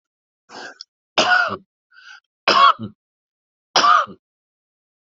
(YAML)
expert_labels:
- quality: ok
  cough_type: dry
  dyspnea: false
  wheezing: false
  stridor: false
  choking: false
  congestion: false
  nothing: true
  diagnosis: COVID-19
  severity: mild
age: 76
gender: male
respiratory_condition: false
fever_muscle_pain: false
status: healthy